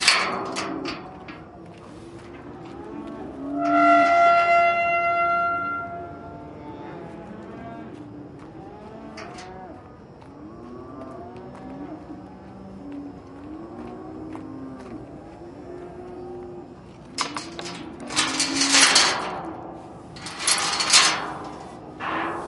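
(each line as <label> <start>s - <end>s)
The metallic sound of a door handle turning. 0.0s - 1.4s
Cows mooing in the distance. 0.4s - 22.5s
A door squeaks as it opens. 3.4s - 6.1s
Footsteps in the distance. 13.8s - 16.1s
The metallic sound of a chain. 17.1s - 21.5s
A faint, tinny sound heard in the distance. 22.0s - 22.5s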